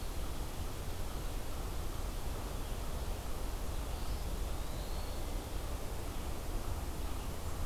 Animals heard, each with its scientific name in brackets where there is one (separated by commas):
Eastern Wood-Pewee (Contopus virens)